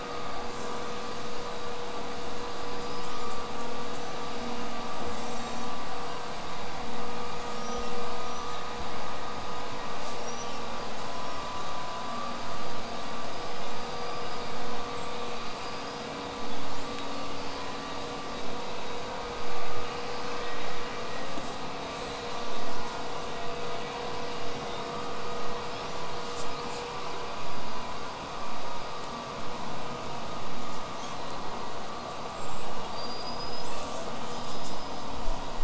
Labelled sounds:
2.5	3.5	killer whale, southern resident, L pod, call S19, 2.2 to 8.0 kHz
5.1	5.7	killer whale, southern resident, L pod, call S18, 3.5 to 8.0 kHz
7.5	7.9	killer whale, southern resident, 5.4 to 8.0 kHz
8.2	8.7	killer whale, southern resident, 5.5 to 8.0 kHz
10.1	10.6	killer whale, southern resident, 5.3 to 8.0 kHz
11.1	11.4	killer whale, southern resident, whistle, 5.0 to 8.0 kHz
13.7	16.2	killer whale, southern resident, 4.4 to 8.0 kHz
16.7	17.4	killer whale, southern resident, whistle, 6.5 to 8.0 kHz
21.4	21.6	killer whale, southern resident, J pod, call S05, 6.1 to 8.0 kHz
21.9	22.2	killer whale, southern resident, J pod, call S05, 6.7 to 8.0 kHz
25.5	26.0	killer whale, southern resident, 3.1 to 6.1 kHz
31.2	33.8	killer whale, southern resident, 4.4 to 8.0 kHz
33.6	34.2	killer whale, southern resident, buzz, 5.0 to 8.0 kHz
34.4	34.6	killer whale, southern resident, J pod, call S05, 5.3 to 8.0 kHz

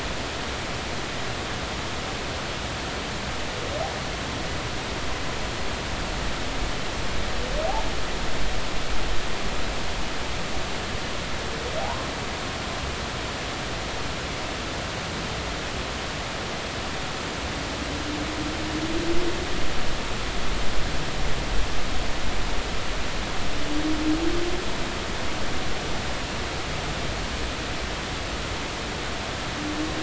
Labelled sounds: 11.8	12.1	humpback whale, 0.80 to 1.1 kHz

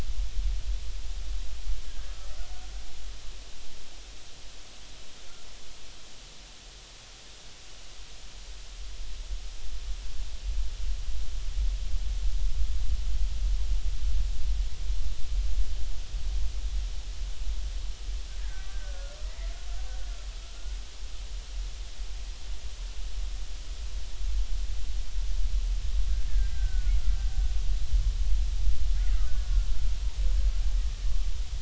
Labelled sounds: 18.4	19.5	killer whale, Bigg's (transient), 1.1 to 2.1 kHz
26.3	27.0	killer whale, Bigg's (transient), 1.4 to 1.8 kHz
28.9	29.7	killer whale, Bigg's (transient), 1.2 to 1.5 kHz

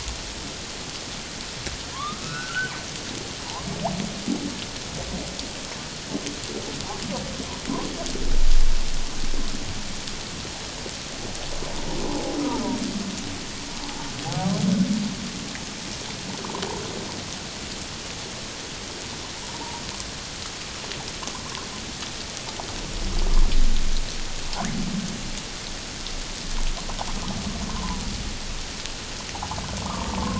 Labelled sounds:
1.9	2.7	humpback whale, 0.94 to 2.7 kHz
12.4	12.7	humpback whale, 1.1 to 1.3 kHz
19.4	19.8	humpback whale, 0.84 to 1.0 kHz
27.7	28.0	humpback whale, 0.84 to 1.1 kHz
29.3	30.3	humpback whale, 0.78 to 1.3 kHz

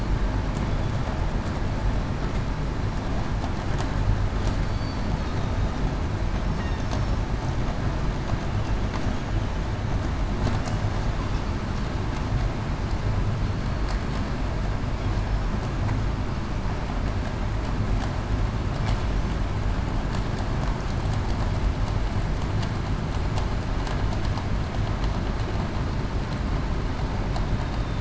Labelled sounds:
4.7	5.1	killer whale, southern resident, 4.5 to 4.6 kHz
6.4	6.8	killer whale, southern resident, 5.4 to 5.6 kHz

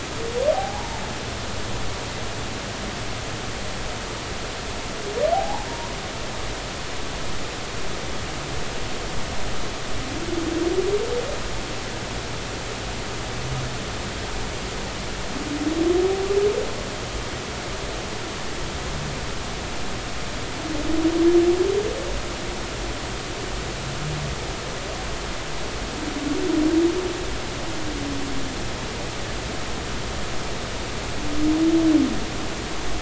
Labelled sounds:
0.5	0.9	humpback whale, 0.80 to 1.0 kHz
5.3	5.9	humpback whale, 0.80 to 1.0 kHz

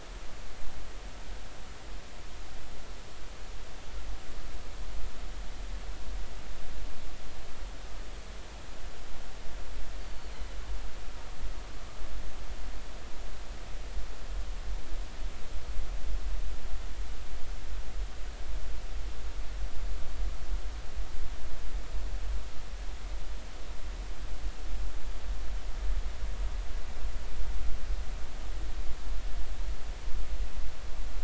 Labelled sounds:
10.0	10.3	killer whale, northern resident, G clan, GG subclan, call N23ii, 4.4 to 4.7 kHz

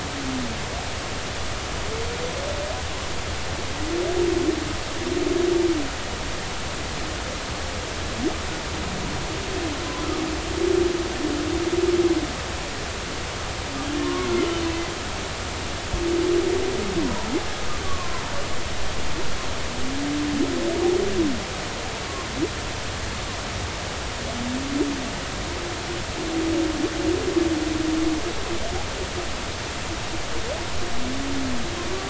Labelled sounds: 14.0	14.3	humpback whale, 1.0 to 1.2 kHz
17.0	17.3	humpback whale, 0.86 to 1.0 kHz
17.8	18.2	humpback whale, 0.93 to 1.2 kHz

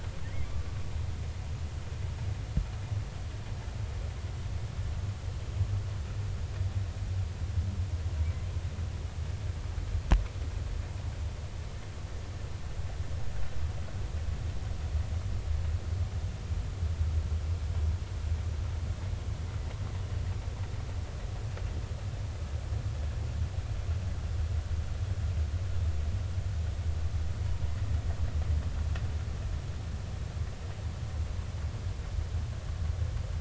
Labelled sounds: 0.2	0.6	humpback whale, 1.7 to 2.4 kHz

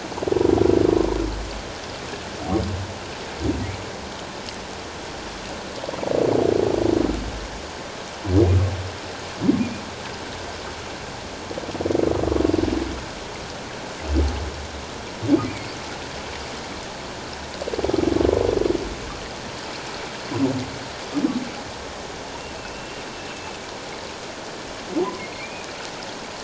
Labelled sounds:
9.6	9.9	humpback whale, 2.2 to 2.5 kHz
15.5	15.7	humpback whale, 2.1 to 2.5 kHz
22.6	23.0	humpback whale, 2.5 to 2.8 kHz
23.3	23.6	humpback whale, 2.5 to 2.7 kHz
25.2	25.7	humpback whale, 2.1 to 2.6 kHz

